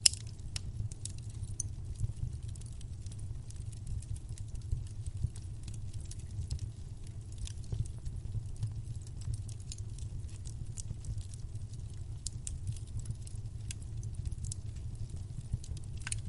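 Wood crackling in a fireplace. 0:00.0 - 0:16.3

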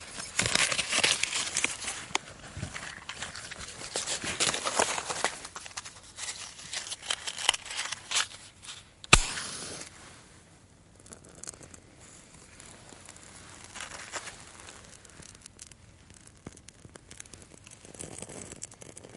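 A matchstick is taken out of a matchbox with faint wooden friction sounds. 0:00.1 - 0:09.0
A match is struck and ignites. 0:09.0 - 0:09.9
Soft crackling from a candle wick after ignition. 0:10.0 - 0:19.2

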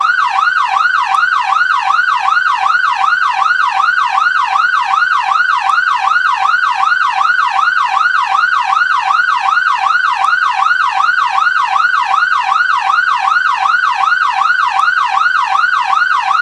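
A loud, rhythmic, and repeating siren sounds. 0:00.1 - 0:16.4

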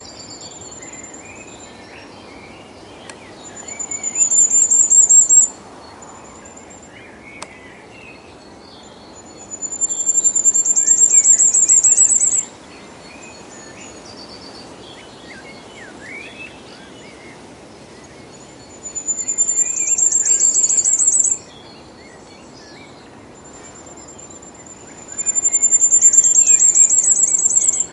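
Birds sing in the distance with an even rhythm. 0:00.0 - 0:27.9
A bird is singing loudly nearby with rapidly increasing frequency. 0:03.7 - 0:05.7
A dull mechanical click. 0:07.3 - 0:07.6
A bird is singing loudly nearby with rapidly increasing frequency. 0:09.5 - 0:12.6
A bird is singing loudly nearby with rapidly increasing frequency. 0:18.8 - 0:21.5
A bird is singing loudly nearby with rapidly increasing frequency. 0:25.1 - 0:27.9

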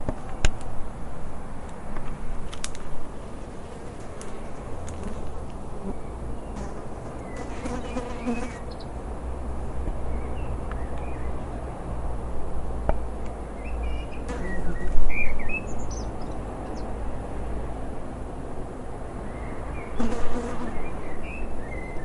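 A soft, constant natural noise is heard outdoors without abrupt changes in volume. 0:00.0 - 0:06.2
A fly buzzes softly in a natural outdoor setting. 0:06.2 - 0:08.5
A bird calls briefly with a short, steady sound. 0:08.5 - 0:09.6
A soft, constant natural sound is heard outdoors. 0:09.6 - 0:10.7
A bird calls briefly in an outdoor natural setting. 0:10.7 - 0:11.4
A soft, constant natural noise is heard outdoors. 0:11.4 - 0:13.5
A bird calls briefly in an outdoor natural setting. 0:13.5 - 0:14.2
A fly buzzes softly in a natural outdoor setting. 0:14.2 - 0:14.9
A bird calls outdoors, starting loudly and gradually becoming softer. 0:14.9 - 0:17.4
Constant outdoor nature sounds. 0:17.5 - 0:19.9
A bird and a fly make their normal sounds in nature. 0:20.0 - 0:22.0

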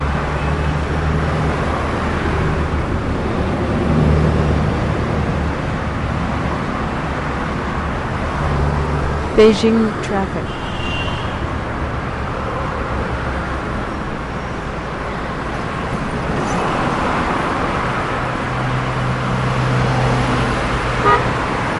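City noise is loud. 0:00.0 - 0:21.8
Traffic beeping sounds. 0:00.3 - 0:01.1
A robotic woman is speaking. 0:09.2 - 0:10.6
A car is beeping. 0:10.6 - 0:11.7
An old car is driving. 0:16.3 - 0:16.9
A car beeps. 0:21.0 - 0:21.3

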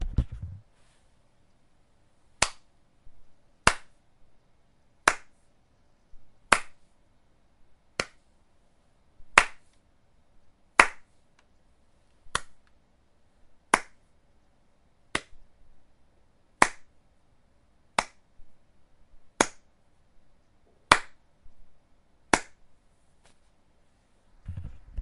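A microphone is turning on with a muffled sound. 0:00.0 - 0:00.5
One person clapping at somewhat regular intervals in an almost silent indoor environment. 0:02.3 - 0:22.5
A microphone is being turned off indoors. 0:24.3 - 0:25.0

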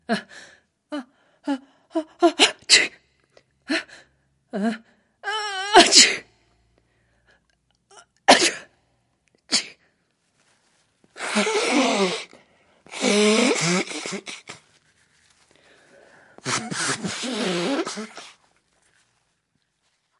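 A woman sneezes and inhales quickly and briefly. 0:00.0 - 0:01.6
A woman sneezes reluctantly. 0:01.9 - 0:03.0
A woman sneezes. 0:03.7 - 0:03.9
A woman sneezes and inhales quickly and briefly. 0:04.5 - 0:04.8
A woman sneezes in a quiet environment. 0:05.2 - 0:06.3
A woman sneezes in a quiet environment. 0:07.9 - 0:08.7
A woman sneezes softly. 0:09.5 - 0:09.8
A woman blows her nose. 0:11.1 - 0:14.6
A woman blows her nose. 0:16.4 - 0:18.4

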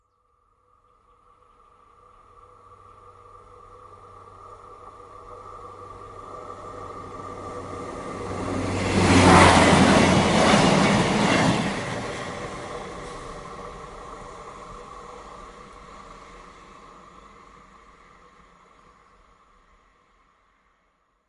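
A train passes by, getting louder and then fading away. 0:00.9 - 0:19.4

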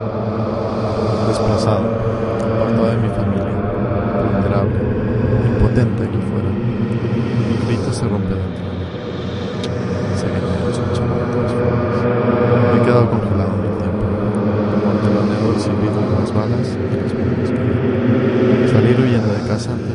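A smooth male voice is speaking. 0:00.0 - 0:19.9
An echoing voice. 0:00.0 - 0:19.9
Scary sounds are being sung. 0:00.0 - 0:19.9

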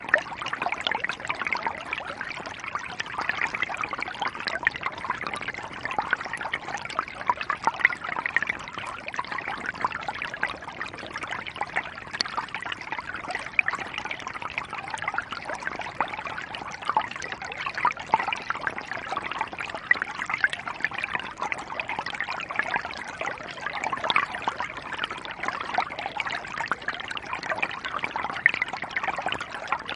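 An underwater stream flows. 0:00.0 - 0:29.9

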